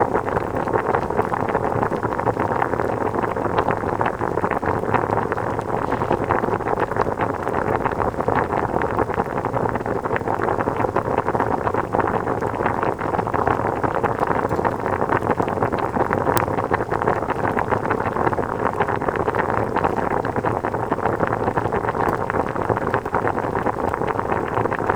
Is the noise steady?
yes